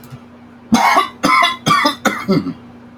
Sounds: Cough